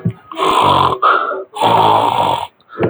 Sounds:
Sneeze